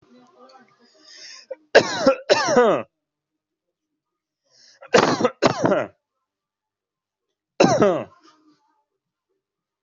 {"expert_labels": [{"quality": "ok", "cough_type": "unknown", "dyspnea": false, "wheezing": false, "stridor": false, "choking": false, "congestion": false, "nothing": true, "diagnosis": "upper respiratory tract infection", "severity": "mild"}], "gender": "female", "respiratory_condition": false, "fever_muscle_pain": false, "status": "healthy"}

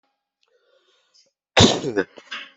{"expert_labels": [{"quality": "poor", "cough_type": "unknown", "dyspnea": false, "wheezing": false, "stridor": false, "choking": false, "congestion": false, "nothing": true, "severity": "unknown"}], "age": 33, "gender": "male", "respiratory_condition": false, "fever_muscle_pain": false, "status": "healthy"}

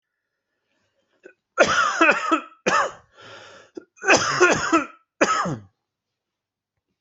{"expert_labels": [{"quality": "good", "cough_type": "dry", "dyspnea": false, "wheezing": false, "stridor": false, "choking": false, "congestion": false, "nothing": true, "diagnosis": "COVID-19", "severity": "mild"}], "age": 52, "gender": "male", "respiratory_condition": false, "fever_muscle_pain": true, "status": "symptomatic"}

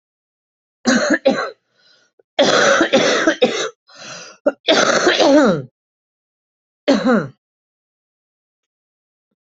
{"expert_labels": [{"quality": "ok", "cough_type": "wet", "dyspnea": false, "wheezing": false, "stridor": false, "choking": false, "congestion": false, "nothing": true, "diagnosis": "COVID-19", "severity": "mild"}]}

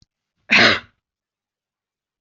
{"expert_labels": [{"quality": "ok", "cough_type": "dry", "dyspnea": false, "wheezing": false, "stridor": false, "choking": false, "congestion": false, "nothing": true, "diagnosis": "healthy cough", "severity": "pseudocough/healthy cough"}], "age": 18, "gender": "female", "respiratory_condition": false, "fever_muscle_pain": false, "status": "symptomatic"}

